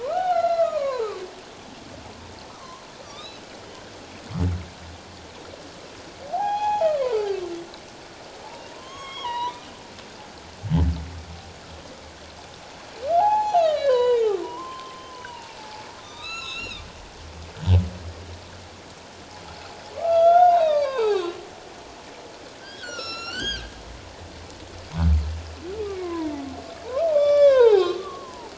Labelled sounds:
0.0	1.1	humpback whale, 0.78 to 4.2 kHz
2.5	3.4	humpback whale, 0.97 to 4.0 kHz
6.3	7.2	humpback whale, 0.78 to 6.8 kHz
8.7	9.6	humpback whale, 0.88 to 6.7 kHz
13.2	16.8	humpback whale, 0.78 to 8.0 kHz
19.9	21.4	humpback whale, 0.78 to 4.1 kHz
22.6	23.7	humpback whale, 1.2 to 8.0 kHz
25.8	26.3	humpback whale, 0.91 to 2.4 kHz
27.1	28.0	humpback whale, 0.78 to 5.8 kHz

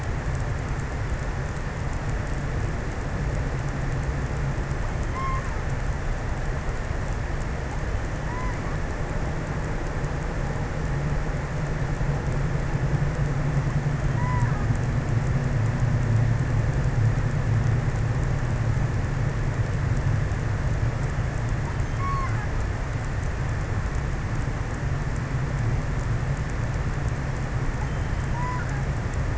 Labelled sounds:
4.7	6.1	killer whale, offshore, 0.73 to 3.4 kHz
8.0	9.1	killer whale, offshore, 0.71 to 3.3 kHz
13.9	14.9	killer whale, offshore, 0.67 to 2.8 kHz
21.2	22.7	killer whale, offshore, 0.61 to 2.5 kHz
27.8	29.3	killer whale, offshore, 0.63 to 2.3 kHz

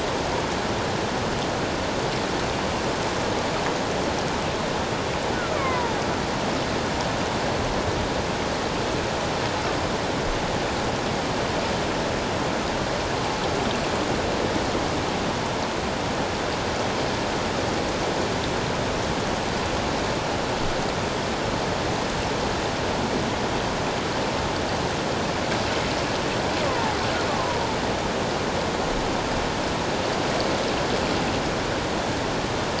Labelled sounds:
5.3	6.0	killer whale, Bigg's (transient), 0.81 to 2.5 kHz
26.7	27.6	killer whale, Bigg's (transient), 0.81 to 1.2 kHz

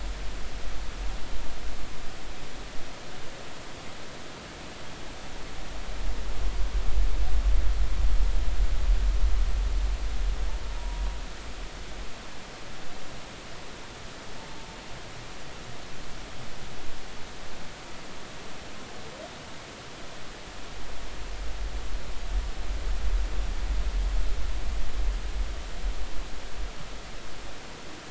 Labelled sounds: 10.8	11.0	humpback whale, 0.93 to 1.0 kHz

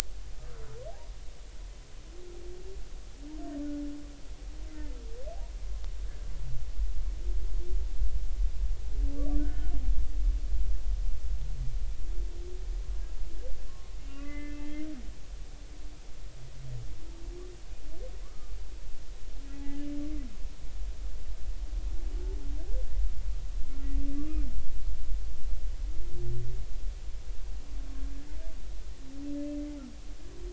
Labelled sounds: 0.4	0.7	humpback whale, 1.1 to 1.5 kHz
9.4	9.7	humpback whale, 1.4 to 1.6 kHz
14.1	15.2	humpback whale, 1.1 to 2.9 kHz
18.2	18.5	humpback whale, 1.0 to 1.3 kHz
19.5	19.9	humpback whale, 0.80 to 1.8 kHz
24.2	24.4	humpback whale, 1.1 to 1.3 kHz

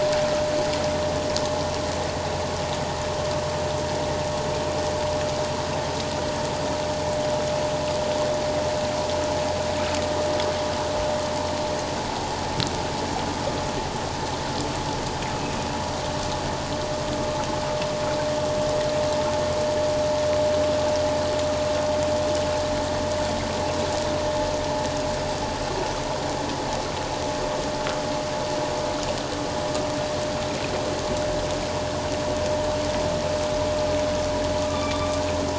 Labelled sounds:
34.6	35.1	humpback whale, 1.1 to 3.6 kHz

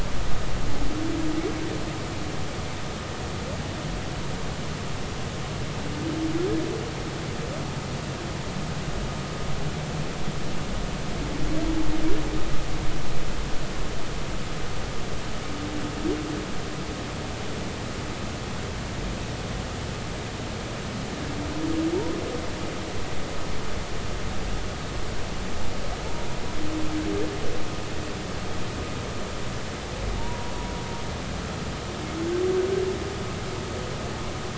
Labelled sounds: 30.2	30.5	humpback whale, 0.86 to 1.0 kHz

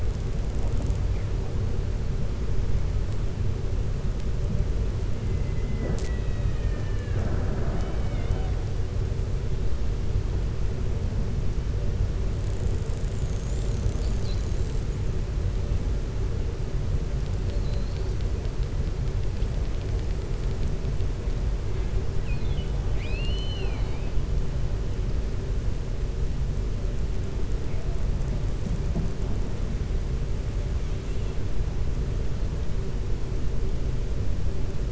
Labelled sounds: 22.8	24.1	killer whale, 0.66 to 6.3 kHz

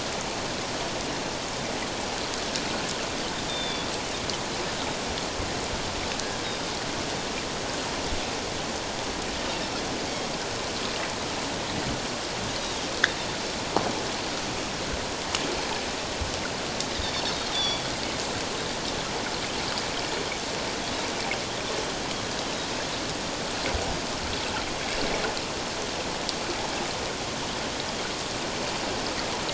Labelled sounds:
3.5	3.9	Pacific white-sided dolphin, 3.3 to 3.7 kHz
16.9	17.8	Pacific white-sided dolphin, 3.3 to 5.9 kHz

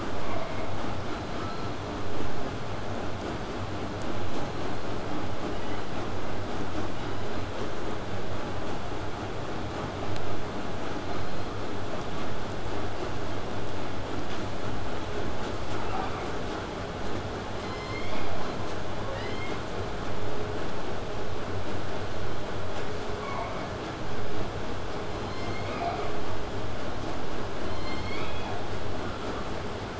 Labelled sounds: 0.2	0.7	killer whale, southern resident, 0.50 to 2.6 kHz
1.1	1.8	killer whale, southern resident, 1.1 to 4.4 kHz
5.5	5.8	killer whale, southern resident, 1.7 to 3.1 kHz
6.9	7.5	killer whale, southern resident, 2.8 to 4.3 kHz
11.0	11.5	killer whale, southern resident, 4.0 to 4.3 kHz
15.7	16.3	killer whale, southern resident, 0.56 to 4.8 kHz
17.6	18.6	killer whale, southern resident, J pod, call S01, 0.50 to 8.0 kHz
23.2	23.7	killer whale, southern resident, 0.54 to 3.7 kHz
25.6	26.2	killer whale, southern resident, 0.35 to 2.6 kHz
27.6	28.6	killer whale, southern resident, J pod, call S01, 0.93 to 8.0 kHz
29.0	29.5	killer whale, southern resident, 0.77 to 4.9 kHz

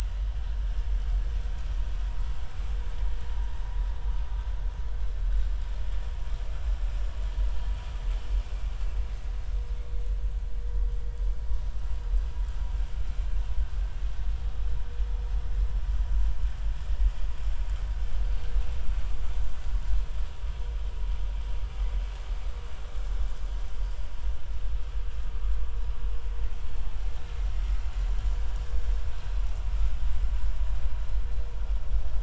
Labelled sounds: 0.0	0.5	vessel noise, 2.9 to 3.2 kHz

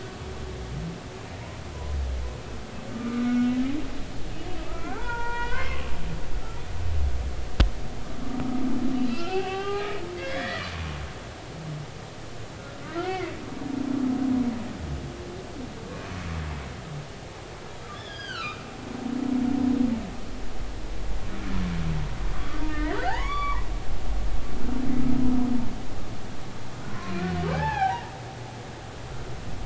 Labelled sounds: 2.9	3.5	humpback whale, 1.2 to 1.5 kHz
4.7	5.9	humpback whale, 0.80 to 3.2 kHz
9.1	10.7	humpback whale, 0.80 to 3.5 kHz
13.0	13.3	humpback whale, 2.0 to 2.3 kHz
15.9	16.2	humpback whale, 2.4 to 2.5 kHz
17.9	18.6	humpback whale, 1.1 to 5.0 kHz
22.3	23.7	humpback whale, 0.80 to 4.7 kHz
26.9	28.0	humpback whale, 0.80 to 2.7 kHz

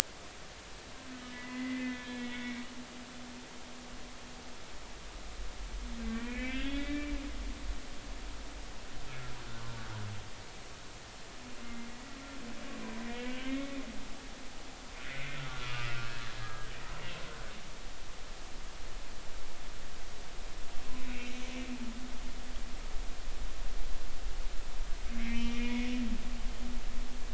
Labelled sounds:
1.2	2.6	humpback whale, 0.93 to 4.0 kHz
6.1	7.1	humpback whale, 1.5 to 3.5 kHz
11.6	11.9	humpback whale, 2.0 to 2.1 kHz
13.1	13.8	humpback whale, 1.5 to 3.7 kHz
15.1	15.4	humpback whale, 1.9 to 2.2 kHz
15.7	16.7	humpback whale, 1.2 to 2.8 kHz
21.0	21.3	humpback whale, 2.1 to 2.8 kHz
25.2	25.9	humpback whale, 2.0 to 2.6 kHz

